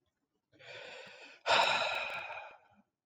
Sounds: Sigh